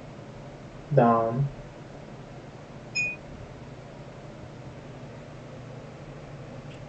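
At 0.91 seconds, someone says "Down." Then at 2.95 seconds, glass chinks.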